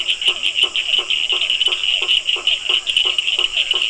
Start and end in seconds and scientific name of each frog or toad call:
0.0	3.8	Boana faber
0.0	3.8	Sphaenorhynchus surdus
0.2	3.8	Physalaemus cuvieri